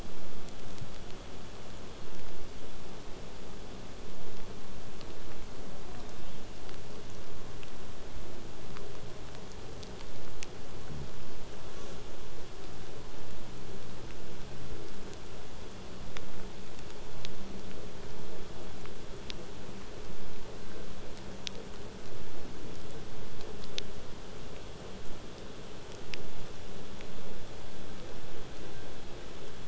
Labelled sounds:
11.7	12.0	killer whale, southern resident, J pod, call S05, 0.38 to 8.0 kHz
15.0	20.0	vessel noise, 0 to 8.0 kHz

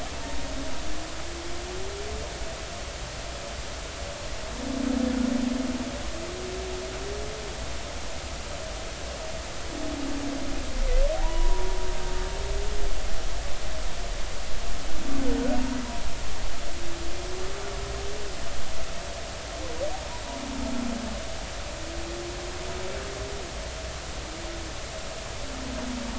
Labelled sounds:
11.1	11.8	humpback whale, 0.80 to 1.0 kHz

